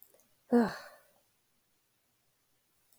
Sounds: Sigh